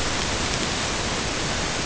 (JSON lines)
{"label": "ambient", "recorder": "HydroMoth"}